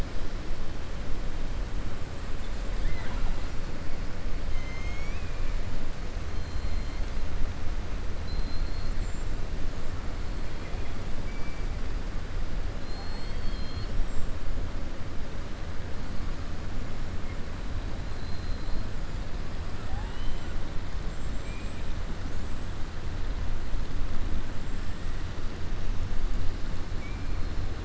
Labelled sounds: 4.4	5.5	killer whale, southern resident, 1.8 to 6.8 kHz
6.3	7.1	killer whale, southern resident, 3.2 to 4.4 kHz
8.1	9.0	killer whale, southern resident, 3.5 to 4.9 kHz
18.1	18.8	killer whale, southern resident, 3.9 to 4.6 kHz

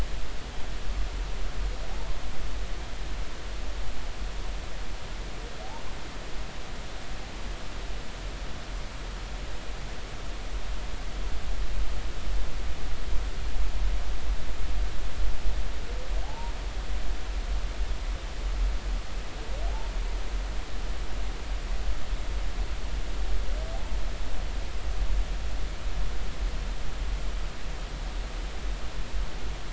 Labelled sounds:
16.2	16.5	humpback whale, 0.80 to 0.99 kHz
23.7	24.0	humpback whale, 0.80 to 0.99 kHz

